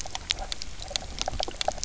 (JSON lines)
{"label": "biophony, knock croak", "recorder": "SoundTrap 300"}